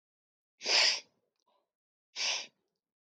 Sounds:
Sniff